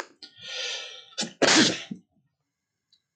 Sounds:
Sneeze